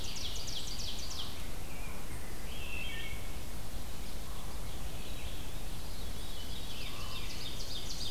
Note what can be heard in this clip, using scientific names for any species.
Seiurus aurocapilla, Vireo olivaceus, Pheucticus ludovicianus, Hylocichla mustelina, Catharus fuscescens, Corvus corax